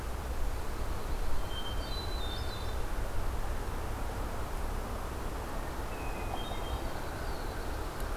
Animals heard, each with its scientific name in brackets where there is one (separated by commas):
Hermit Thrush (Catharus guttatus), Black-throated Blue Warbler (Setophaga caerulescens)